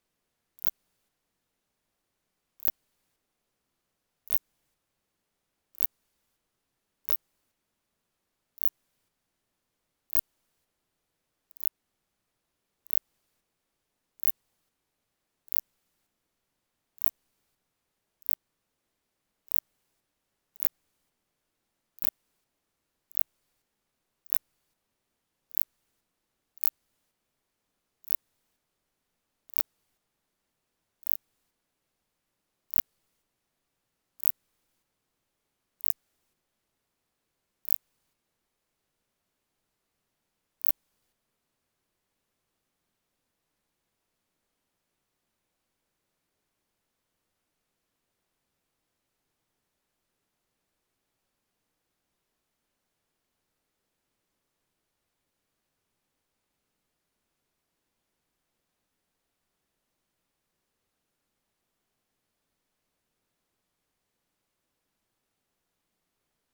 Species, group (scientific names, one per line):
Phaneroptera nana
Orthoptera